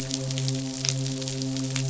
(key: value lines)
label: biophony, midshipman
recorder: SoundTrap 500